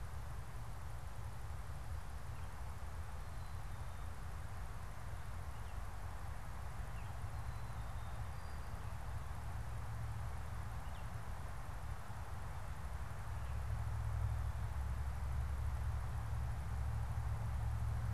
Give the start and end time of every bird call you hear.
6.7s-7.1s: Baltimore Oriole (Icterus galbula)
10.6s-11.1s: Baltimore Oriole (Icterus galbula)

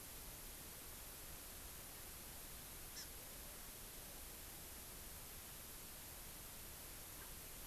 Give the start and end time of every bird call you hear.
2.9s-3.1s: Hawaii Amakihi (Chlorodrepanis virens)

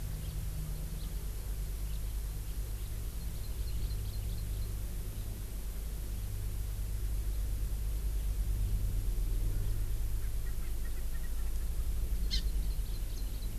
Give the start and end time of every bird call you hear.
0.2s-0.3s: House Finch (Haemorhous mexicanus)
1.0s-1.1s: House Finch (Haemorhous mexicanus)
1.9s-2.0s: House Finch (Haemorhous mexicanus)
3.2s-4.7s: Hawaii Amakihi (Chlorodrepanis virens)
10.2s-11.7s: Erckel's Francolin (Pternistis erckelii)
12.3s-13.5s: Hawaii Amakihi (Chlorodrepanis virens)

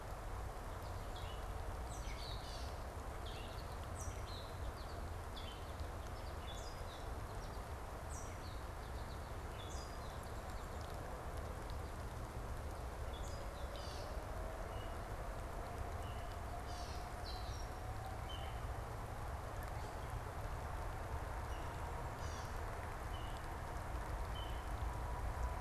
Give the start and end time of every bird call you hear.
0.9s-18.9s: Gray Catbird (Dumetella carolinensis)
1.6s-5.3s: American Goldfinch (Spinus tristis)
21.3s-25.2s: Gray Catbird (Dumetella carolinensis)

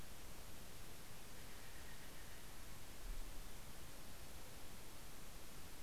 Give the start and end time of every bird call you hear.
0.0s-3.5s: Steller's Jay (Cyanocitta stelleri)

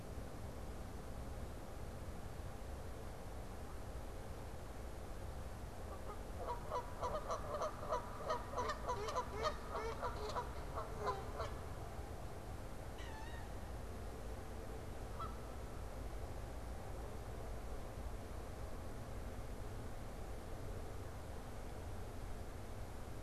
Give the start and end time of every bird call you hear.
5.5s-11.7s: Canada Goose (Branta canadensis)
12.8s-13.7s: Wood Duck (Aix sponsa)
15.0s-15.9s: Canada Goose (Branta canadensis)

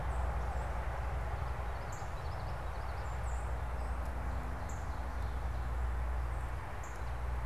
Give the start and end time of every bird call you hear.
0.0s-7.5s: Northern Cardinal (Cardinalis cardinalis)
1.5s-3.1s: Common Yellowthroat (Geothlypis trichas)
4.5s-5.7s: Ovenbird (Seiurus aurocapilla)

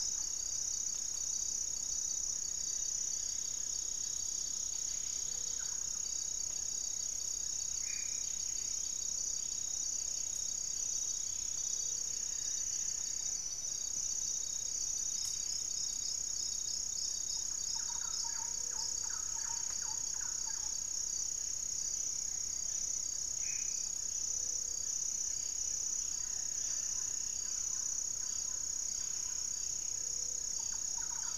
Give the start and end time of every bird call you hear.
0.0s-1.4s: Thrush-like Wren (Campylorhynchus turdinus)
0.0s-31.4s: Amazonian Trogon (Trogon ramonianus)
2.0s-3.7s: unidentified bird
2.5s-6.0s: Striped Woodcreeper (Xiphorhynchus obsoletus)
4.6s-31.4s: Buff-breasted Wren (Cantorchilus leucotis)
5.0s-5.9s: Gray-fronted Dove (Leptotila rufaxilla)
7.7s-8.3s: Black-faced Antthrush (Formicarius analis)
11.6s-12.5s: Gray-fronted Dove (Leptotila rufaxilla)
12.2s-13.4s: unidentified bird
17.0s-21.0s: Thrush-like Wren (Campylorhynchus turdinus)
18.3s-19.2s: Gray-fronted Dove (Leptotila rufaxilla)
23.2s-23.9s: Black-faced Antthrush (Formicarius analis)
24.1s-25.0s: Gray-fronted Dove (Leptotila rufaxilla)
25.7s-31.4s: Thrush-like Wren (Campylorhynchus turdinus)
29.8s-30.7s: Gray-fronted Dove (Leptotila rufaxilla)

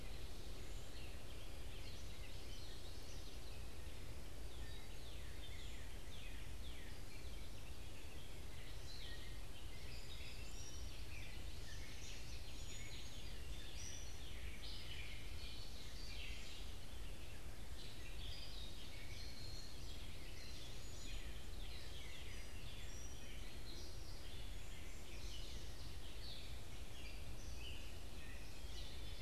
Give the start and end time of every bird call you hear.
0.0s-29.2s: Gray Catbird (Dumetella carolinensis)
1.4s-3.5s: Common Yellowthroat (Geothlypis trichas)
4.3s-7.2s: Northern Cardinal (Cardinalis cardinalis)
15.2s-17.0s: Ovenbird (Seiurus aurocapilla)
28.5s-29.2s: Common Yellowthroat (Geothlypis trichas)

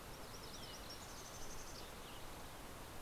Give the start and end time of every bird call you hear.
0.0s-1.5s: MacGillivray's Warbler (Geothlypis tolmiei)
0.9s-2.6s: Mountain Chickadee (Poecile gambeli)

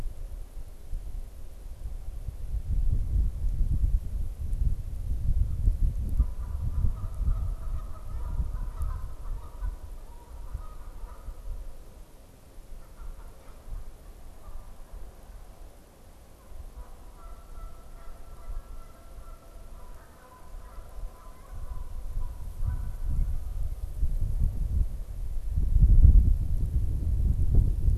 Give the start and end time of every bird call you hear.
6.0s-23.6s: Canada Goose (Branta canadensis)

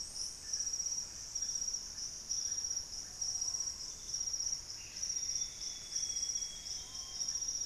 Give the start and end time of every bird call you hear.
0.0s-7.7s: Russet-backed Oropendola (Psarocolius angustifrons)
3.2s-7.4s: Screaming Piha (Lipaugus vociferans)
3.9s-7.6s: Plumbeous Antbird (Myrmelastes hyperythrus)
4.8s-7.7s: Amazonian Grosbeak (Cyanoloxia rothschildii)

